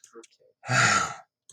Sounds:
Sigh